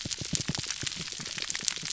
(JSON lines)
{"label": "biophony, pulse", "recorder": "SoundTrap 300"}